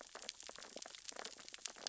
{"label": "biophony, sea urchins (Echinidae)", "recorder": "SoundTrap 600 or HydroMoth"}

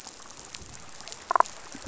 {"label": "biophony, damselfish", "recorder": "SoundTrap 500"}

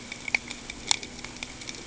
{"label": "ambient", "recorder": "HydroMoth"}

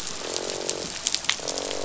{"label": "biophony, croak", "recorder": "SoundTrap 500"}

